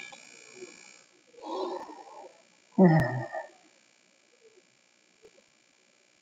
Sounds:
Sigh